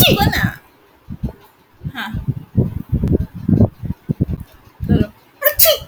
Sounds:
Sneeze